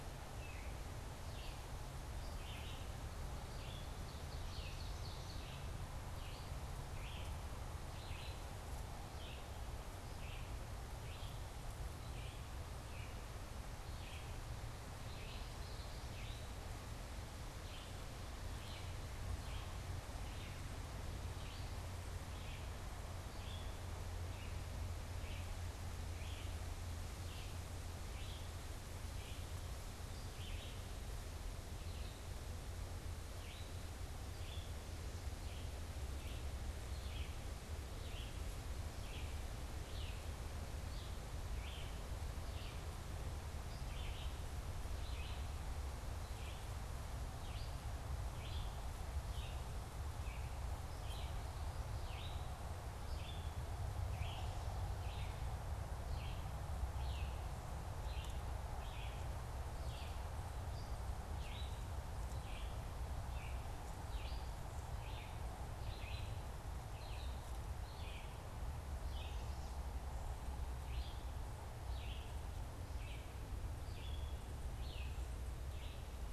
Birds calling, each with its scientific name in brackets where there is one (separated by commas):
Ovenbird (Seiurus aurocapilla), Common Yellowthroat (Geothlypis trichas), Red-eyed Vireo (Vireo olivaceus)